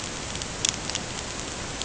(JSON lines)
{"label": "ambient", "recorder": "HydroMoth"}